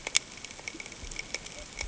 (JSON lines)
{"label": "ambient", "recorder": "HydroMoth"}